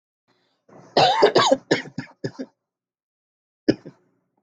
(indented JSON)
{
  "expert_labels": [
    {
      "quality": "ok",
      "cough_type": "dry",
      "dyspnea": false,
      "wheezing": false,
      "stridor": false,
      "choking": false,
      "congestion": false,
      "nothing": false,
      "diagnosis": "COVID-19",
      "severity": "mild"
    }
  ],
  "age": 29,
  "gender": "female",
  "respiratory_condition": false,
  "fever_muscle_pain": true,
  "status": "symptomatic"
}